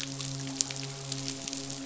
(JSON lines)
{"label": "biophony, midshipman", "recorder": "SoundTrap 500"}